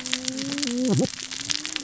{"label": "biophony, cascading saw", "recorder": "SoundTrap 600 or HydroMoth"}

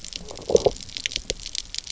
{"label": "biophony", "recorder": "SoundTrap 300"}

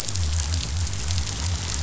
{"label": "biophony", "recorder": "SoundTrap 500"}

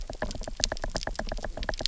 {"label": "biophony, knock", "recorder": "SoundTrap 300"}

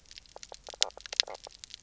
{"label": "biophony, knock croak", "recorder": "SoundTrap 300"}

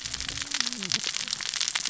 {"label": "biophony, cascading saw", "recorder": "SoundTrap 600 or HydroMoth"}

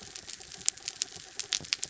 {"label": "anthrophony, mechanical", "recorder": "SoundTrap 300"}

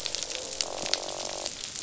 {"label": "biophony, croak", "recorder": "SoundTrap 500"}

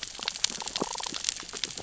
{"label": "biophony, damselfish", "recorder": "SoundTrap 600 or HydroMoth"}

